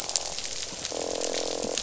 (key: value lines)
label: biophony, croak
recorder: SoundTrap 500